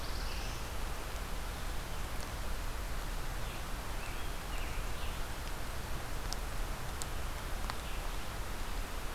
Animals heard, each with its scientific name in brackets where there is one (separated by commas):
Black-throated Blue Warbler (Setophaga caerulescens), Scarlet Tanager (Piranga olivacea)